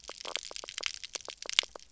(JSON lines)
{"label": "biophony, knock croak", "recorder": "SoundTrap 300"}